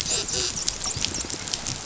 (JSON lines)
{"label": "biophony, dolphin", "recorder": "SoundTrap 500"}